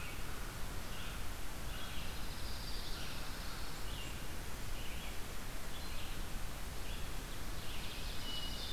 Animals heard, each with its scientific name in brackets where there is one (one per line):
Ovenbird (Seiurus aurocapilla)
Hermit Thrush (Catharus guttatus)
Red-eyed Vireo (Vireo olivaceus)
American Crow (Corvus brachyrhynchos)
Dark-eyed Junco (Junco hyemalis)